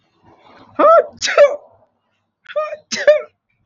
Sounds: Sneeze